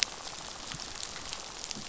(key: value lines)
label: biophony, rattle
recorder: SoundTrap 500